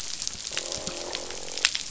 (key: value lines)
label: biophony, croak
recorder: SoundTrap 500